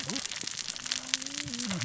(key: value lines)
label: biophony, cascading saw
recorder: SoundTrap 600 or HydroMoth